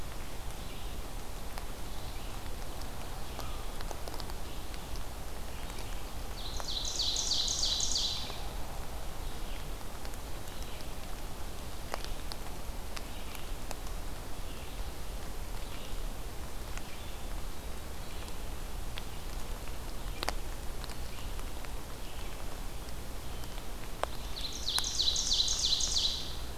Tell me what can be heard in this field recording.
Red-eyed Vireo, Ovenbird